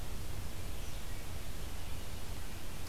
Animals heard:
forest ambience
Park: Marsh-Billings-Rockefeller National Historical Park